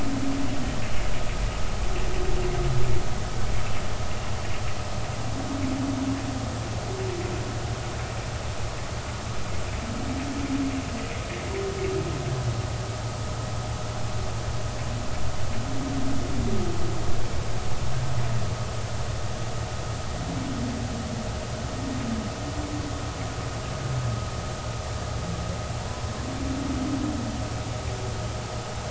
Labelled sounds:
25.8	26.1	humpback whale, 0.90 to 1.1 kHz

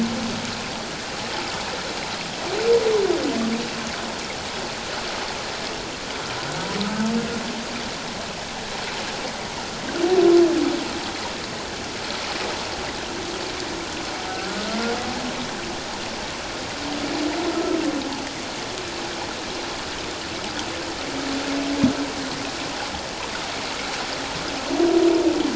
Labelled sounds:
14.3	14.6	humpback whale, 1.3 to 1.5 kHz
17.5	17.8	humpback whale, 1.2 to 1.4 kHz

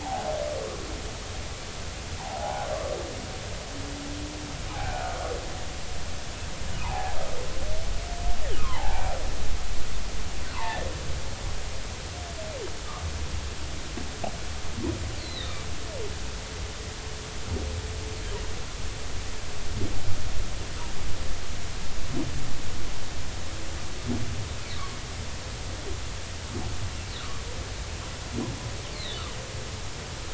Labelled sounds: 0.0	0.2	humpback whale, 0.80 to 0.99 kHz
2.2	2.7	humpback whale, 0.80 to 1.1 kHz
4.7	5.2	humpback whale, 0.80 to 1.6 kHz
6.8	7.2	humpback whale, 0.80 to 1.1 kHz
8.6	9.1	humpback whale, 0.80 to 1.3 kHz
10.5	10.9	humpback whale, 0.80 to 2.1 kHz
15.2	15.6	humpback whale, 1.8 to 4.6 kHz
27.2	27.4	humpback whale, 1.1 to 1.5 kHz
28.9	29.2	humpback whale, 3.4 to 4.6 kHz

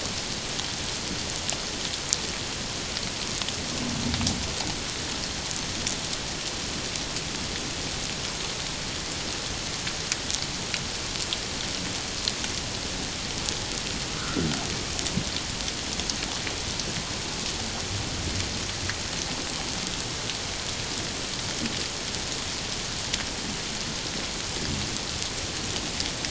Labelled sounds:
14.1	14.5	humpback whale, 1.2 to 1.6 kHz

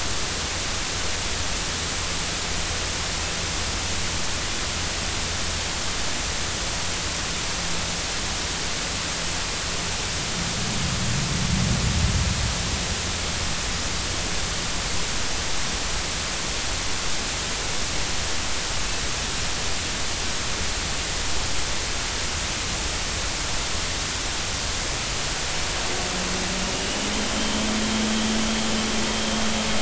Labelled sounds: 26.7	27.0	vessel noise, 2.8 to 3.0 kHz
27.3	27.7	vessel noise, 3.0 to 3.3 kHz

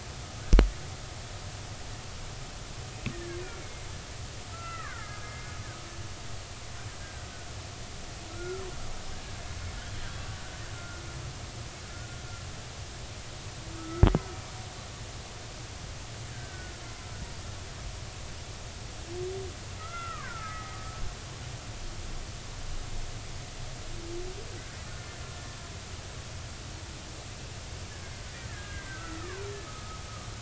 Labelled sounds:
3.1	3.9	killer whale, Bigg's (transient), 1.5 to 2.3 kHz
4.5	5.4	killer whale, Bigg's (transient), 1.0 to 2.8 kHz
7.0	7.3	killer whale, Bigg's (transient), 1.5 to 1.7 kHz
8.3	8.6	killer whale, Bigg's (transient), 1.3 to 1.5 kHz
10.8	11.0	killer whale, Bigg's (transient), 1.3 to 1.5 kHz
13.7	14.1	killer whale, Bigg's (transient), 1.2 to 1.5 kHz
16.3	16.7	killer whale, Bigg's (transient), 1.4 to 1.8 kHz
19.8	20.8	killer whale, Bigg's (transient), 0.83 to 2.0 kHz
28.5	30.0	killer whale, Bigg's (transient), 0.96 to 1.8 kHz

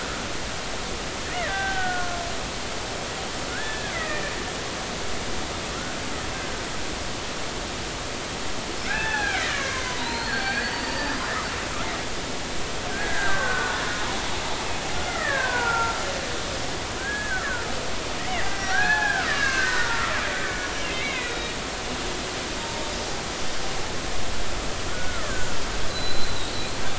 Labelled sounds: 1.2	2.2	killer whale, Bigg's (transient), 0.80 to 2.2 kHz
3.5	4.3	killer whale, Bigg's (transient), 1.4 to 2.6 kHz
8.9	11.3	killer whale, Bigg's (transient), 0.80 to 6.1 kHz
12.9	13.8	killer whale, Bigg's (transient), 0.99 to 1.8 kHz
14.9	16.0	killer whale, Bigg's (transient), 0.86 to 2.2 kHz
17.0	17.7	killer whale, Bigg's (transient), 1.3 to 1.9 kHz
18.2	21.5	killer whale, Bigg's (transient), 0.80 to 5.8 kHz
22.6	22.9	killer whale, Bigg's (transient), 0.86 to 0.96 kHz
24.9	25.5	killer whale, Bigg's (transient), 1.2 to 1.9 kHz
25.9	26.3	killer whale, Bigg's (transient), 3.9 to 8.0 kHz

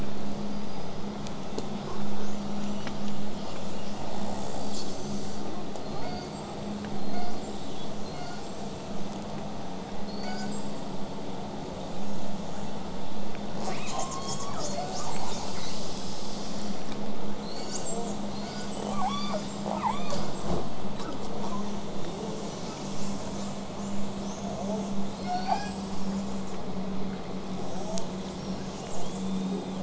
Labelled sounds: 0.3	1.0	killer whale, southern resident, 4.6 to 5.2 kHz
1.1	4.0	killer whale, southern resident, call S10, 2.4 to 8.0 kHz
5.8	9.1	killer whale, southern resident, call S42, 0.58 to 8.0 kHz
10.1	10.8	killer whale, southern resident, call S42, 0.83 to 8.0 kHz
11.6	12.3	killer whale, southern resident, buzz, 6.4 to 8.0 kHz
13.6	15.8	killer whale, southern resident, call S10, 1.3 to 8.0 kHz
13.9	15.3	killer whale, southern resident, J pod, call S03, 0.54 to 4.6 kHz
17.4	19.0	killer whale, southern resident, call S42, 0.27 to 8.0 kHz
18.9	20.5	killer whale, southern resident, J pod, call S44, 0.39 to 8.0 kHz
21.2	22.6	killer whale, southern resident, buzz, 0.81 to 8.0 kHz
22.9	24.4	killer whale, southern resident, L pod, call S18, 5.1 to 8.0 kHz
24.4	25.0	killer whale, southern resident, buzz, 0.41 to 8.0 kHz
25.1	26.6	killer whale, southern resident, 0.54 to 8.0 kHz
27.5	28.2	killer whale, southern resident, buzz, 0.27 to 8.0 kHz
28.3	29.8	killer whale, southern resident, 2.8 to 8.0 kHz

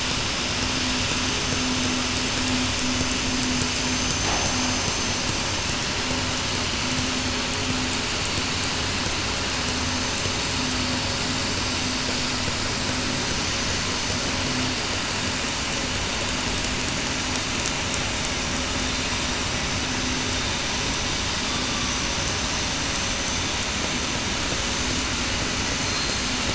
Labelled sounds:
13.3	13.7	vessel noise, 6.0 to 6.1 kHz
25.9	26.2	killer whale, southern resident, 4.1 to 4.2 kHz

